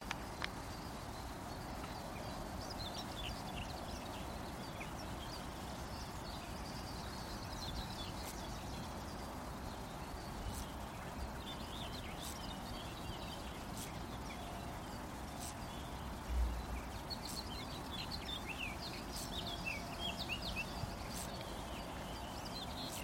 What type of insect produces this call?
orthopteran